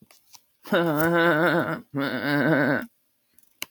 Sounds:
Laughter